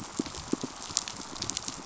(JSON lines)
{"label": "biophony, pulse", "recorder": "SoundTrap 500"}